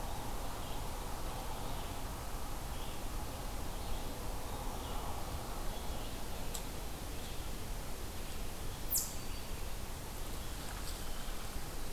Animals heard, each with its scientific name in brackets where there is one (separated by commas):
Red-eyed Vireo (Vireo olivaceus), Black-throated Green Warbler (Setophaga virens), Eastern Chipmunk (Tamias striatus)